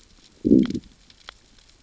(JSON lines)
{"label": "biophony, growl", "recorder": "SoundTrap 600 or HydroMoth"}